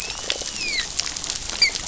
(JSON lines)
{"label": "biophony", "recorder": "SoundTrap 500"}
{"label": "biophony, dolphin", "recorder": "SoundTrap 500"}